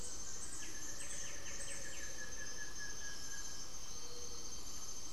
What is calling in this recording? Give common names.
Buff-throated Woodcreeper, Cinereous Tinamou, Gray-fronted Dove, White-winged Becard